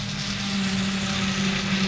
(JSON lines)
{"label": "anthrophony, boat engine", "recorder": "SoundTrap 500"}